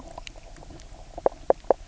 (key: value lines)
label: biophony, knock croak
recorder: SoundTrap 300